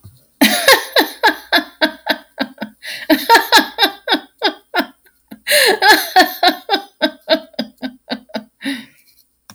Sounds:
Laughter